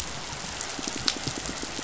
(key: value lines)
label: biophony, pulse
recorder: SoundTrap 500